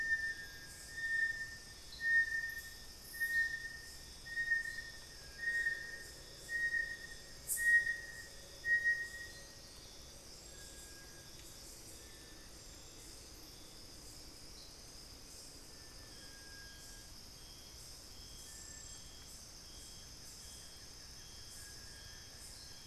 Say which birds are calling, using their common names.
Little Tinamou, Cinereous Tinamou, Buff-throated Woodcreeper